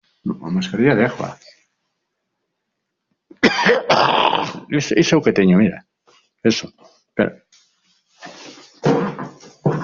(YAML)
expert_labels:
- quality: ok
  cough_type: wet
  dyspnea: false
  wheezing: false
  stridor: false
  choking: false
  congestion: false
  nothing: true
  diagnosis: lower respiratory tract infection
  severity: severe
age: 68
gender: male
respiratory_condition: false
fever_muscle_pain: false
status: COVID-19